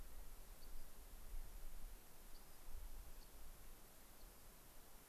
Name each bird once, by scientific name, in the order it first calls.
Salpinctes obsoletus